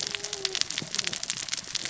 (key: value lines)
label: biophony, cascading saw
recorder: SoundTrap 600 or HydroMoth